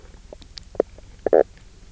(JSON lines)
{"label": "biophony, knock croak", "recorder": "SoundTrap 300"}